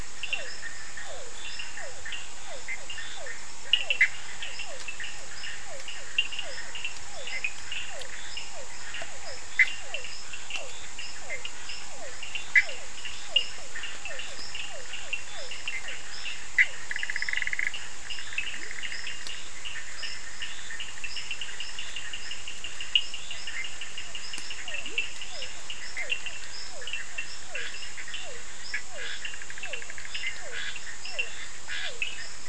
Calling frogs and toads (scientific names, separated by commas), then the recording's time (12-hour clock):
Physalaemus cuvieri, Sphaenorhynchus surdus, Boana bischoffi, Leptodactylus latrans, Scinax perereca
10:30pm